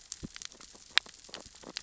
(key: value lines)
label: biophony, sea urchins (Echinidae)
recorder: SoundTrap 600 or HydroMoth